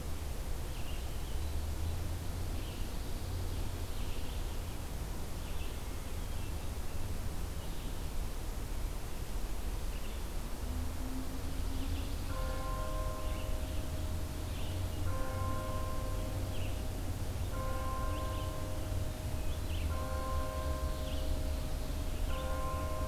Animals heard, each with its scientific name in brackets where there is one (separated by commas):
Red-eyed Vireo (Vireo olivaceus), Pine Warbler (Setophaga pinus)